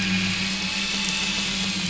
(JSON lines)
{"label": "anthrophony, boat engine", "recorder": "SoundTrap 500"}